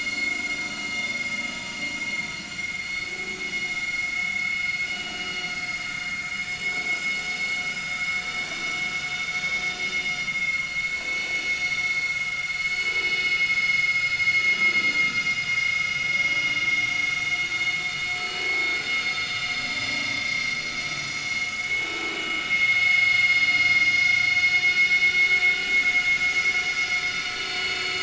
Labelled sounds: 0.1	0.4	vessel noise, 2.1 to 2.2 kHz
2.8	3.2	vessel noise, 2.2 to 4.4 kHz
8.7	9.7	vessel noise, 5.2 to 6.7 kHz
10.0	11.7	vessel noise, 2.0 to 6.6 kHz
12.6	14.3	vessel noise, 5.0 to 7.2 kHz
15.0	15.4	vessel noise, 4.9 to 7.9 kHz
17.5	17.8	vessel noise, 4.3 to 4.4 kHz
19.5	20.6	vessel noise, 4.9 to 5.8 kHz
20.9	22.2	vessel noise, 2.1 to 6.5 kHz
22.8	24.3	vessel noise, 2.0 to 5.9 kHz
26.3	26.8	vessel noise, 5.1 to 6.0 kHz
27.5	28.0	vessel noise, 4.4 to 6.8 kHz

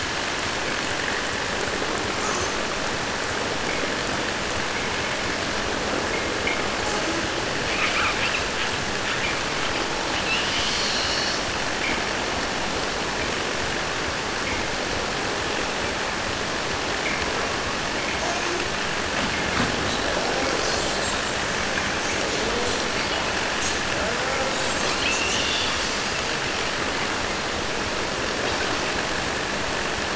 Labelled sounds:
2.2	2.6	killer whale, 0.47 to 8.0 kHz
7.6	12.2	killer whale, 0.06 to 7.5 kHz
18.1	18.9	killer whale, 0.08 to 7.8 kHz
19.1	21.3	killer whale, 0 to 8.0 kHz
21.7	26.4	killer whale, 0.48 to 8.0 kHz
28.3	28.8	killer whale, 0.98 to 5.9 kHz

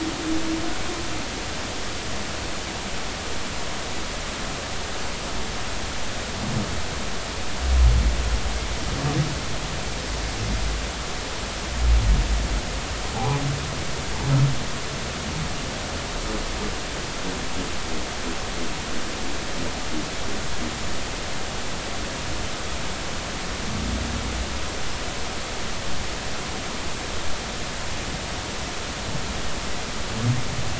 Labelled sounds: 13.1	13.4	humpback whale, 0.80 to 1.0 kHz

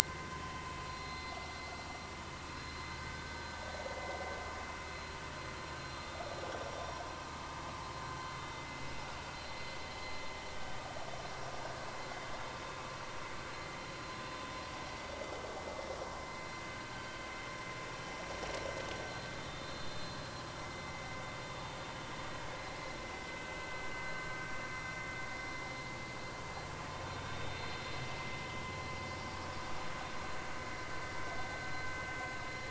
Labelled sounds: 0.9	1.3	vessel noise, 4.0 to 4.2 kHz
3.0	3.4	vessel noise, 1.5 to 1.6 kHz
19.6	19.9	vessel noise, 4.1 to 4.3 kHz
20.6	21.0	vessel noise, 2.0 to 2.1 kHz

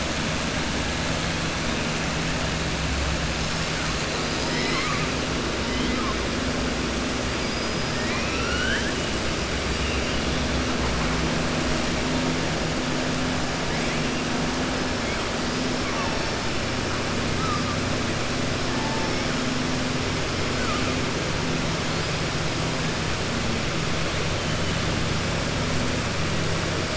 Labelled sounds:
4.2	5.1	killer whale, southern resident, 0.95 to 5.3 kHz
7.4	9.0	killer whale, southern resident, 1.1 to 5.1 kHz

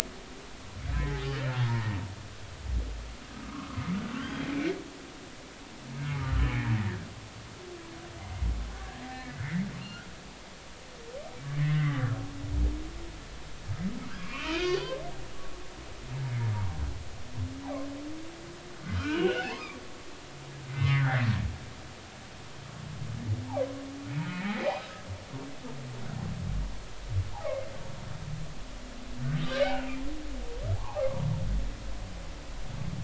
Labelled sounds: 0.9	1.9	humpback whale, 0.80 to 3.1 kHz
3.4	4.5	humpback whale, 0.99 to 3.4 kHz
9.1	9.4	humpback whale, 1.7 to 1.9 kHz
11.6	12.1	humpback whale, 1.0 to 2.1 kHz
14.2	14.9	humpback whale, 1.0 to 4.8 kHz
19.0	19.8	humpback whale, 0.80 to 3.0 kHz
20.7	21.4	humpback whale, 1.3 to 2.1 kHz
24.3	24.7	humpback whale, 1.9 to 2.6 kHz
27.5	27.7	humpback whale, 2.0 to 2.3 kHz
29.7	30.0	humpback whale, 2.3 to 2.9 kHz
30.7	31.0	humpback whale, 0.80 to 1.2 kHz

